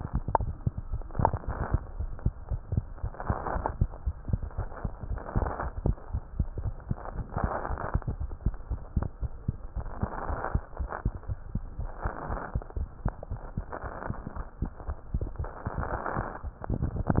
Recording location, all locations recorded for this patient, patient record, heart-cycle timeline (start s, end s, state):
tricuspid valve (TV)
aortic valve (AV)+pulmonary valve (PV)+tricuspid valve (TV)+mitral valve (MV)
#Age: Child
#Sex: Male
#Height: 73.0 cm
#Weight: 8.775 kg
#Pregnancy status: False
#Murmur: Absent
#Murmur locations: nan
#Most audible location: nan
#Systolic murmur timing: nan
#Systolic murmur shape: nan
#Systolic murmur grading: nan
#Systolic murmur pitch: nan
#Systolic murmur quality: nan
#Diastolic murmur timing: nan
#Diastolic murmur shape: nan
#Diastolic murmur grading: nan
#Diastolic murmur pitch: nan
#Diastolic murmur quality: nan
#Outcome: Normal
#Campaign: 2015 screening campaign
0.00	9.08	unannotated
9.08	9.21	diastole
9.21	9.30	S1
9.30	9.48	systole
9.48	9.56	S2
9.56	9.76	diastole
9.76	9.88	S1
9.88	10.02	systole
10.02	10.10	S2
10.10	10.28	diastole
10.28	10.40	S1
10.40	10.54	systole
10.54	10.62	S2
10.62	10.80	diastole
10.80	10.90	S1
10.90	11.06	systole
11.06	11.14	S2
11.14	11.30	diastole
11.30	11.38	S1
11.38	11.44	diastole
11.44	11.54	systole
11.54	11.62	S2
11.62	11.80	diastole
11.80	11.90	S1
11.90	12.04	systole
12.04	12.12	S2
12.12	12.30	diastole
12.30	12.40	S1
12.40	12.54	systole
12.54	12.64	S2
12.64	12.78	diastole
12.78	12.88	S1
12.88	13.04	systole
13.04	13.14	S2
13.14	13.29	diastole
13.29	13.38	S1
13.38	13.56	systole
13.56	13.68	S2
13.68	13.83	diastole
13.83	14.37	unannotated
14.37	14.46	S1
14.46	14.62	systole
14.62	14.72	S2
14.72	14.87	diastole
14.87	14.96	S1
14.96	15.12	systole
15.12	15.22	S2
15.22	15.39	diastole
15.39	17.20	unannotated